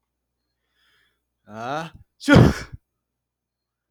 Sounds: Sneeze